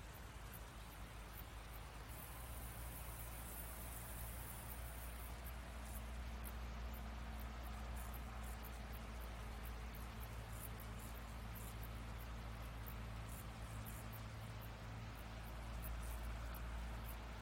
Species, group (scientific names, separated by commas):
Gomphocerippus rufus, Orthoptera